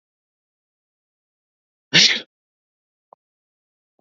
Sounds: Sneeze